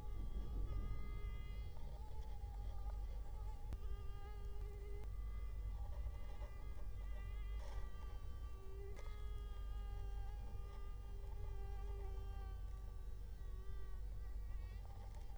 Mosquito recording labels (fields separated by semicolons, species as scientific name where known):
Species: Culex quinquefasciatus; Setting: cup